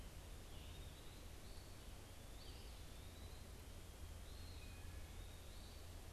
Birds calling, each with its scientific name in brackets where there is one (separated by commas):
unidentified bird, Eastern Wood-Pewee (Contopus virens)